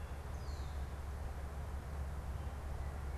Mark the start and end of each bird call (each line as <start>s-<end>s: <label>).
0.0s-1.1s: Red-winged Blackbird (Agelaius phoeniceus)